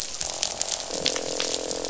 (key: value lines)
label: biophony, croak
recorder: SoundTrap 500